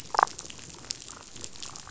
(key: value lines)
label: biophony, damselfish
recorder: SoundTrap 500